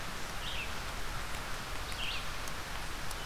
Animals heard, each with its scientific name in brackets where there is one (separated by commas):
Red-eyed Vireo (Vireo olivaceus)